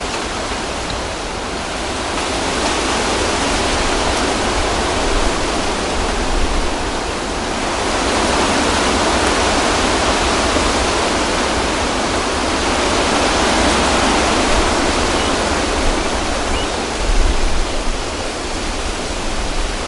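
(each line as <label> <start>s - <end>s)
Very loud, strong, and continuous wind. 0.0s - 19.9s
A few birds chirp faintly in the distance. 15.1s - 18.7s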